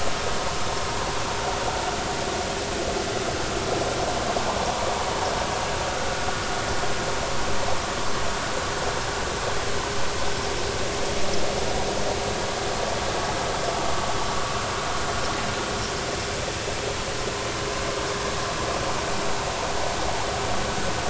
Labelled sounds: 5.9	6.3	vessel noise, 1.4 to 1.5 kHz

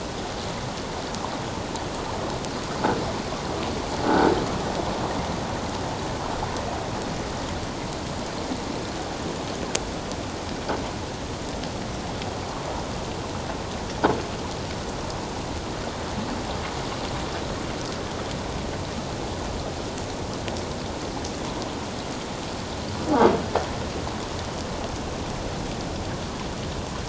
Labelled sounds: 4.0	4.3	croaking sound likely from a nearby submerged object, 1.4 to 1.6 kHz

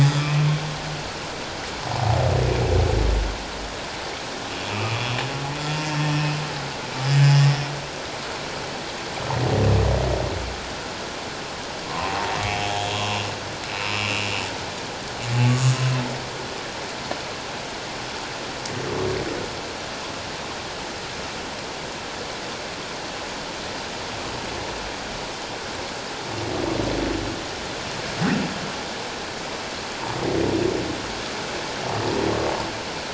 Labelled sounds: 0.2	0.4	humpback whale, 2.5 to 2.6 kHz
4.7	5.0	humpback whale, 2.3 to 2.9 kHz
13.8	14.3	humpback whale, 2.3 to 2.9 kHz
15.5	15.7	humpback whale, 1.1 to 1.2 kHz

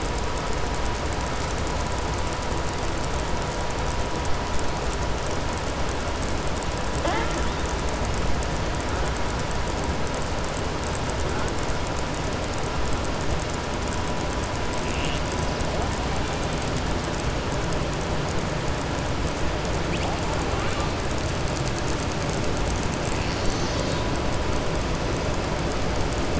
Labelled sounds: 20.5	20.9	killer whale, southern resident, 0.76 to 4.4 kHz

